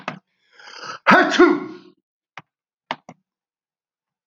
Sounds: Sneeze